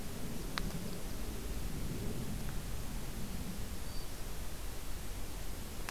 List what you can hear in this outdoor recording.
Blackburnian Warbler